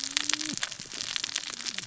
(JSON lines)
{"label": "biophony, cascading saw", "recorder": "SoundTrap 600 or HydroMoth"}